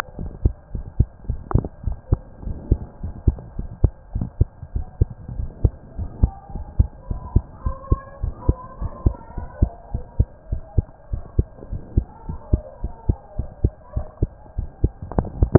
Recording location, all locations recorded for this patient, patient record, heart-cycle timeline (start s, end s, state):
mitral valve (MV)
aortic valve (AV)+pulmonary valve (PV)+tricuspid valve (TV)+mitral valve (MV)
#Age: Child
#Sex: Male
#Height: 118.0 cm
#Weight: 20.5 kg
#Pregnancy status: False
#Murmur: Absent
#Murmur locations: nan
#Most audible location: nan
#Systolic murmur timing: nan
#Systolic murmur shape: nan
#Systolic murmur grading: nan
#Systolic murmur pitch: nan
#Systolic murmur quality: nan
#Diastolic murmur timing: nan
#Diastolic murmur shape: nan
#Diastolic murmur grading: nan
#Diastolic murmur pitch: nan
#Diastolic murmur quality: nan
#Outcome: Normal
#Campaign: 2015 screening campaign
0.00	2.44	unannotated
2.44	2.58	S1
2.58	2.68	systole
2.68	2.80	S2
2.80	3.02	diastole
3.02	3.14	S1
3.14	3.26	systole
3.26	3.40	S2
3.40	3.58	diastole
3.58	3.70	S1
3.70	3.80	systole
3.80	3.94	S2
3.94	4.14	diastole
4.14	4.25	S1
4.25	4.36	systole
4.36	4.50	S2
4.50	4.74	diastole
4.74	4.86	S1
4.86	5.00	systole
5.00	5.10	S2
5.10	5.34	diastole
5.34	5.50	S1
5.50	5.60	systole
5.60	5.74	S2
5.74	5.98	diastole
5.98	6.10	S1
6.10	6.20	systole
6.20	6.32	S2
6.32	6.54	diastole
6.54	6.66	S1
6.66	6.76	systole
6.76	6.90	S2
6.90	7.10	diastole
7.10	7.22	S1
7.22	7.32	systole
7.32	7.46	S2
7.46	7.64	diastole
7.64	7.76	S1
7.76	7.88	systole
7.88	8.02	S2
8.02	8.22	diastole
8.22	8.34	S1
8.34	8.46	systole
8.46	8.60	S2
8.60	8.80	diastole
8.80	8.92	S1
8.92	9.02	systole
9.02	9.14	S2
9.14	9.36	diastole
9.36	9.48	S1
9.48	9.58	systole
9.58	9.70	S2
9.70	9.94	diastole
9.94	10.04	S1
10.04	10.16	systole
10.16	10.28	S2
10.28	10.50	diastole
10.50	10.62	S1
10.62	10.74	systole
10.74	10.88	S2
10.88	11.12	diastole
11.12	11.24	S1
11.24	11.36	systole
11.36	11.50	S2
11.50	11.72	diastole
11.72	11.82	S1
11.82	11.96	systole
11.96	12.08	S2
12.08	12.28	diastole
12.28	12.38	S1
12.38	12.52	systole
12.52	12.64	S2
12.64	12.82	diastole
12.82	12.94	S1
12.94	13.08	systole
13.08	13.16	S2
13.16	13.34	diastole
13.34	13.48	S1
13.48	13.62	systole
13.62	13.76	S2
13.76	13.93	diastole
13.93	14.08	S1
14.08	15.58	unannotated